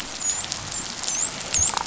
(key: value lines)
label: biophony
recorder: SoundTrap 500

label: biophony, dolphin
recorder: SoundTrap 500